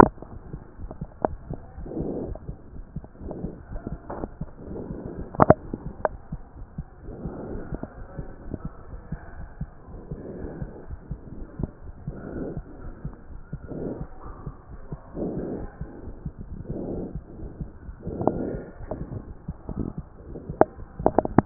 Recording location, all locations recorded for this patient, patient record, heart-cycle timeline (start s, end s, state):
aortic valve (AV)
aortic valve (AV)+pulmonary valve (PV)+tricuspid valve (TV)+mitral valve (MV)
#Age: Child
#Sex: Male
#Height: 127.0 cm
#Weight: 36.3 kg
#Pregnancy status: False
#Murmur: Absent
#Murmur locations: nan
#Most audible location: nan
#Systolic murmur timing: nan
#Systolic murmur shape: nan
#Systolic murmur grading: nan
#Systolic murmur pitch: nan
#Systolic murmur quality: nan
#Diastolic murmur timing: nan
#Diastolic murmur shape: nan
#Diastolic murmur grading: nan
#Diastolic murmur pitch: nan
#Diastolic murmur quality: nan
#Outcome: Abnormal
#Campaign: 2014 screening campaign
0.00	8.75	unannotated
8.75	8.92	diastole
8.92	9.00	S1
9.00	9.12	systole
9.12	9.18	S2
9.18	9.38	diastole
9.38	9.48	S1
9.48	9.60	systole
9.60	9.70	S2
9.70	9.90	diastole
9.90	10.00	S1
10.00	10.10	systole
10.10	10.20	S2
10.20	10.42	diastole
10.42	10.50	S1
10.50	10.61	systole
10.61	10.70	S2
10.70	10.90	diastole
10.90	10.98	S1
10.98	11.10	systole
11.10	11.20	S2
11.20	11.38	diastole
11.38	11.46	S1
11.46	11.60	systole
11.60	11.70	S2
11.70	11.88	diastole
11.88	21.46	unannotated